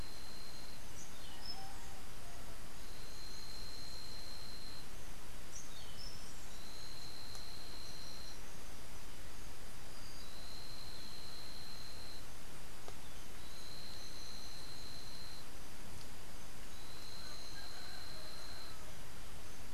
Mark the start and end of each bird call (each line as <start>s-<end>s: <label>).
0.7s-1.8s: Orange-billed Nightingale-Thrush (Catharus aurantiirostris)
5.1s-6.5s: Orange-billed Nightingale-Thrush (Catharus aurantiirostris)